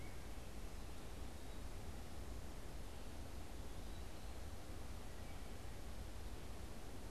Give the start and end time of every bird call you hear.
[4.86, 6.06] Wood Thrush (Hylocichla mustelina)

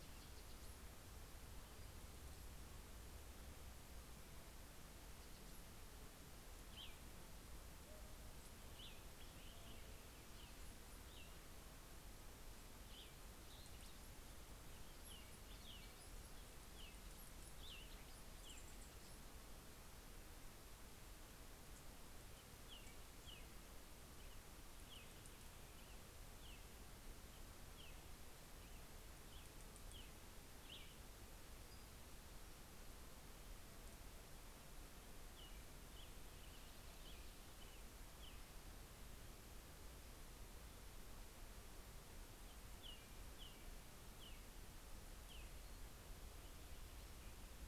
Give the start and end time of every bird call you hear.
[6.50, 18.50] Cassin's Vireo (Vireo cassinii)
[22.20, 30.00] American Robin (Turdus migratorius)
[30.40, 31.40] Cassin's Vireo (Vireo cassinii)
[35.20, 38.20] American Robin (Turdus migratorius)
[42.40, 45.80] American Robin (Turdus migratorius)

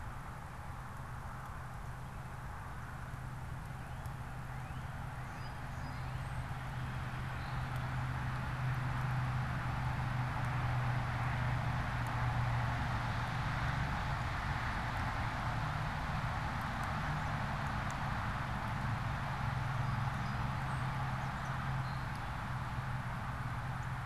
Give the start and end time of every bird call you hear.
[3.40, 6.60] Northern Cardinal (Cardinalis cardinalis)
[5.20, 7.80] Song Sparrow (Melospiza melodia)
[19.60, 22.20] Song Sparrow (Melospiza melodia)
[21.10, 21.60] American Robin (Turdus migratorius)

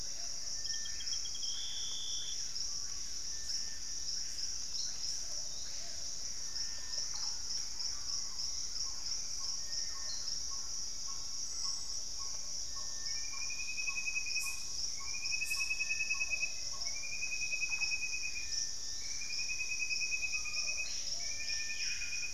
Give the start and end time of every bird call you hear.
[0.00, 1.15] Hauxwell's Thrush (Turdus hauxwelli)
[0.00, 9.35] Screaming Piha (Lipaugus vociferans)
[0.00, 22.33] Plumbeous Pigeon (Patagioenas plumbea)
[5.35, 6.15] Forest Elaenia (Myiopagis gaimardii)
[6.05, 8.65] Gray Antbird (Cercomacra cinerascens)
[8.75, 10.65] Thrush-like Wren (Campylorhynchus turdinus)
[9.75, 12.15] Collared Trogon (Trogon collaris)
[9.85, 11.45] Ringed Woodpecker (Celeus torquatus)
[17.35, 18.25] Russet-backed Oropendola (Psarocolius angustifrons)
[18.05, 20.45] Gray Antbird (Cercomacra cinerascens)
[18.65, 19.45] Forest Elaenia (Myiopagis gaimardii)
[20.15, 22.33] Screaming Piha (Lipaugus vociferans)

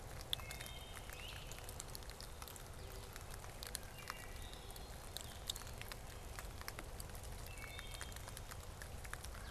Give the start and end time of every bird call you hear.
[0.00, 9.51] Wood Thrush (Hylocichla mustelina)
[0.95, 1.75] Great Crested Flycatcher (Myiarchus crinitus)

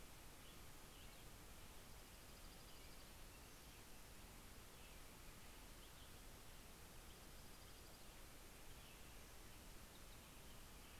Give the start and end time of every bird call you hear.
[0.00, 10.99] American Robin (Turdus migratorius)
[1.59, 3.19] Dark-eyed Junco (Junco hyemalis)
[6.39, 8.19] Dark-eyed Junco (Junco hyemalis)
[9.69, 10.49] Red Crossbill (Loxia curvirostra)

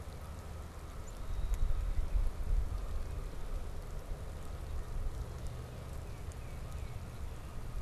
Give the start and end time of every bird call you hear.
[0.00, 4.65] Canada Goose (Branta canadensis)
[1.15, 1.95] Red-winged Blackbird (Agelaius phoeniceus)
[6.05, 7.05] Tufted Titmouse (Baeolophus bicolor)

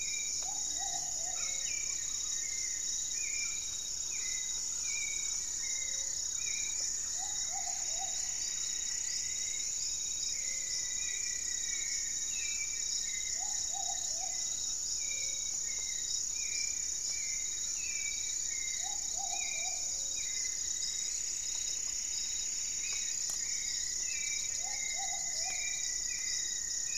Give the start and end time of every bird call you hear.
[0.00, 5.72] Red-bellied Macaw (Orthopsittaca manilatus)
[0.00, 9.62] Thrush-like Wren (Campylorhynchus turdinus)
[0.00, 26.98] Gray-fronted Dove (Leptotila rufaxilla)
[0.00, 26.98] Hauxwell's Thrush (Turdus hauxwelli)
[0.12, 1.92] Plumbeous Pigeon (Patagioenas plumbea)
[0.42, 3.52] Goeldi's Antbird (Akletos goeldii)
[6.32, 10.22] Plumbeous Antbird (Myrmelastes hyperythrus)
[6.72, 12.52] Rufous-fronted Antthrush (Formicarius rufifrons)
[7.02, 8.72] Plumbeous Pigeon (Patagioenas plumbea)
[11.12, 25.42] Goeldi's Antbird (Akletos goeldii)
[13.32, 26.12] Plumbeous Pigeon (Patagioenas plumbea)
[20.02, 23.32] Plumbeous Antbird (Myrmelastes hyperythrus)
[23.12, 26.98] Rufous-fronted Antthrush (Formicarius rufifrons)

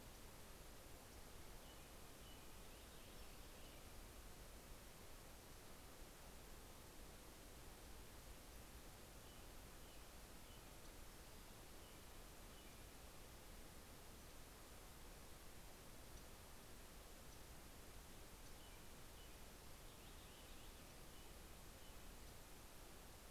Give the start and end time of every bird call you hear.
[2.36, 4.26] Purple Finch (Haemorhous purpureus)
[10.46, 11.36] Yellow-rumped Warbler (Setophaga coronata)
[15.66, 18.76] Yellow-rumped Warbler (Setophaga coronata)
[19.26, 21.16] Purple Finch (Haemorhous purpureus)

